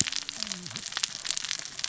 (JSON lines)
{"label": "biophony, cascading saw", "recorder": "SoundTrap 600 or HydroMoth"}